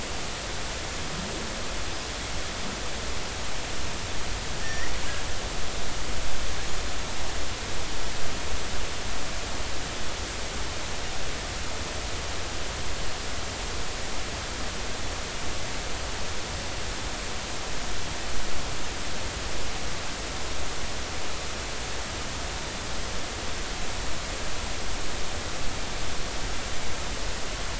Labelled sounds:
4.6	4.9	killer whale, northern resident, G clan, 1.7 to 5.9 kHz

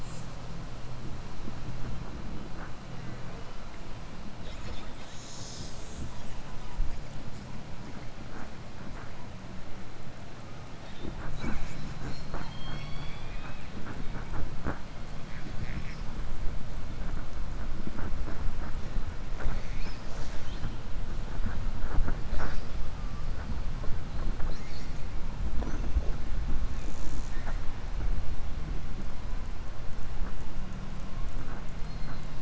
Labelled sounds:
31.8	32.4	killer whale, southern resident, 3.4 to 5.1 kHz

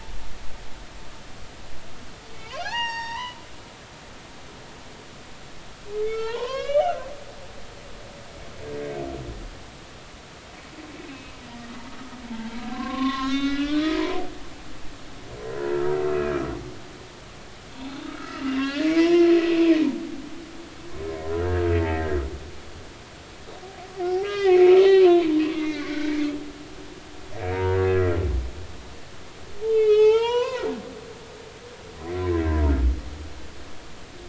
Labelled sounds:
2.5	3.4	humpback whale, 0.80 to 7.6 kHz
6.0	7.0	humpback whale, 0.83 to 5.2 kHz
12.7	14.3	humpback whale, 0.80 to 6.2 kHz
15.7	16.4	humpback whale, 1.2 to 2.6 kHz
17.7	19.3	humpback whale, 0.80 to 4.3 kHz
21.7	22.2	humpback whale, 1.8 to 2.0 kHz
24.0	26.2	humpback whale, 0.90 to 4.4 kHz
27.5	28.2	humpback whale, 0.90 to 2.0 kHz
29.6	31.3	humpback whale, 0.80 to 5.5 kHz

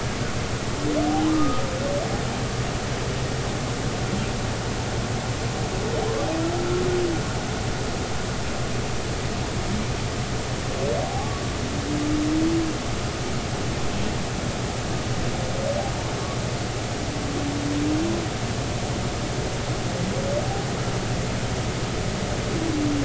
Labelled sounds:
1.3	1.6	humpback whale, 1.2 to 1.3 kHz
11.0	11.3	humpback whale, 0.80 to 0.90 kHz

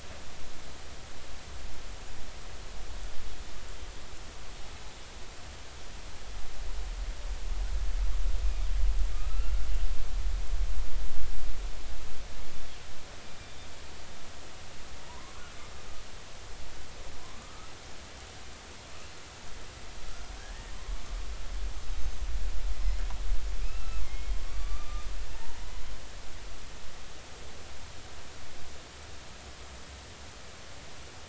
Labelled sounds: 9.1	9.6	killer whale, northern resident, A clan, AB subclan, call N05i, 1.2 to 2.8 kHz
15.1	15.4	killer whale, northern resident, 0.90 to 1.2 kHz
17.4	17.7	killer whale, northern resident, 1.1 to 1.4 kHz
20.3	21.0	killer whale, northern resident, 0.99 to 1.9 kHz
23.6	25.7	killer whale, northern resident, 0.83 to 2.8 kHz

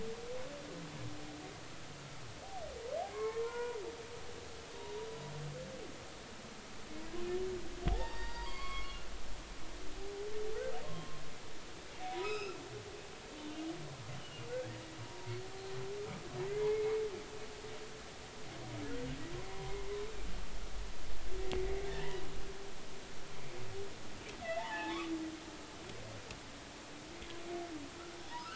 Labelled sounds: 3.1	3.8	humpback whale, 0.90 to 2.3 kHz
7.9	9.1	humpback whale, 0.80 to 4.9 kHz
10.8	11.2	humpback whale, 1.0 to 1.1 kHz
12.1	12.6	humpback whale, 0.93 to 5.4 kHz
13.4	14.5	humpback whale, 2.8 to 3.2 kHz
15.0	15.3	humpback whale, 0.86 to 0.99 kHz
16.5	17.0	humpback whale, 1.9 to 2.2 kHz
19.5	19.8	humpback whale, 0.93 to 1.1 kHz
21.9	22.2	humpback whale, 1.7 to 3.1 kHz
24.4	25.0	humpback whale, 0.80 to 2.1 kHz

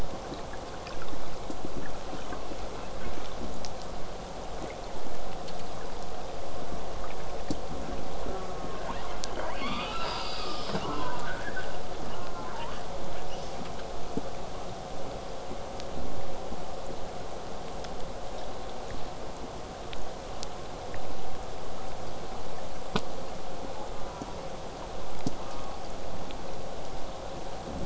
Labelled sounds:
2.6	3.3	killer whale, southern resident, J pod, 0.23 to 2.8 kHz
8.2	8.8	killer whale, southern resident, J pod, call S04, 0.12 to 2.1 kHz
8.8	11.8	killer whale, southern resident, J pod, 0.04 to 8.0 kHz
12.0	12.5	killer whale, southern resident, J pod, call S04, 0.30 to 1.6 kHz
12.5	13.6	killer whale, southern resident, J pod, 0.66 to 7.2 kHz
23.9	24.4	killer whale, southern resident, J pod, call S04, 0.35 to 1.6 kHz
25.3	25.8	killer whale, southern resident, J pod, call S04, 0.27 to 1.4 kHz

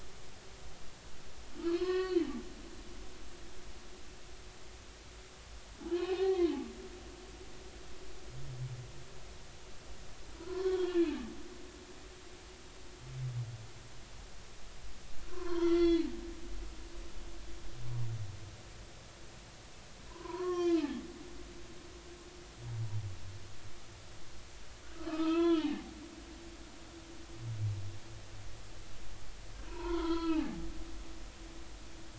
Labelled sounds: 1.7	2.2	humpback whale, 1.0 to 5.2 kHz
5.9	6.4	humpback whale, 0.80 to 2.6 kHz
10.4	11.1	humpback whale, 0.93 to 3.5 kHz
15.3	16.1	humpback whale, 0.90 to 4.5 kHz
20.1	21.0	humpback whale, 0.90 to 5.8 kHz
24.9	25.9	humpback whale, 0.80 to 3.5 kHz
29.7	30.6	humpback whale, 0.80 to 4.4 kHz
31.2	31.5	humpback whale, 2.7 to 3.0 kHz

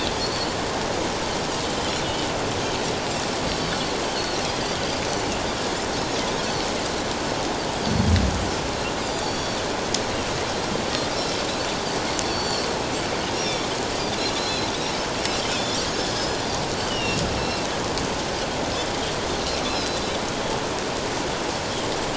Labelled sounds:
0.2	0.5	Pacific white-sided dolphin, 4.2 to 4.6 kHz
3.6	4.4	Pacific white-sided dolphin, 4.0 to 4.7 kHz
9.2	9.6	Pacific white-sided dolphin, 3.3 to 7.0 kHz
11.1	11.4	Pacific white-sided dolphin, 5.2 to 5.5 kHz
12.2	12.7	Pacific white-sided dolphin, 4.2 to 4.6 kHz
14.4	14.7	Pacific white-sided dolphin, 3.7 to 4.2 kHz
15.5	15.8	Pacific white-sided dolphin, 3.2 to 5.4 kHz
16.8	17.6	Pacific white-sided dolphin, 2.6 to 5.7 kHz
19.7	20.0	Pacific white-sided dolphin, 3.9 to 4.1 kHz

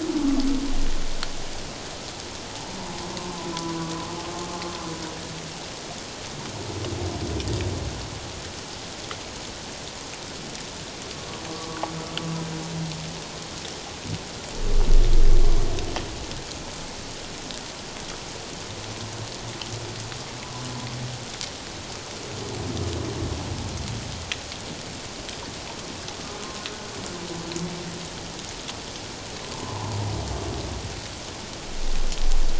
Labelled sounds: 3.2	3.5	humpback whale, 0.97 to 1.1 kHz
11.5	11.8	humpback whale, 1.1 to 1.2 kHz
29.5	30.0	humpback whale, 0.81 to 1.2 kHz

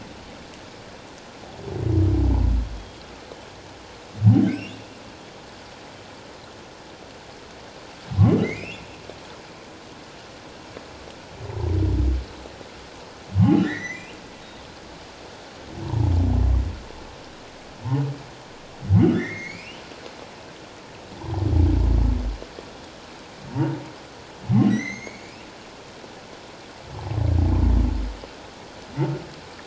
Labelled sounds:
4.5	4.8	humpback whale, 2.3 to 2.9 kHz
8.4	8.9	humpback whale, 1.9 to 2.9 kHz
13.4	14.0	humpback whale, 1.7 to 4.1 kHz
15.8	16.1	humpback whale, 0.81 to 1.0 kHz
19.1	19.8	humpback whale, 1.2 to 3.1 kHz
24.7	25.5	humpback whale, 1.9 to 6.7 kHz

